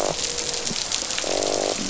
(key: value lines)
label: biophony, croak
recorder: SoundTrap 500